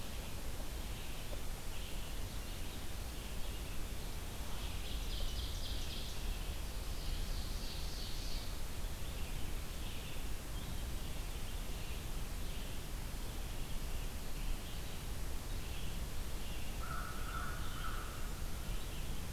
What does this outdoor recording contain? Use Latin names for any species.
Vireo olivaceus, Seiurus aurocapilla, Corvus brachyrhynchos